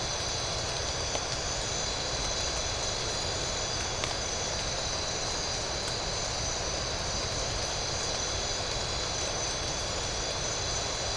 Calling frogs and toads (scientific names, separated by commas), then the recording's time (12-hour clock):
none
1:45am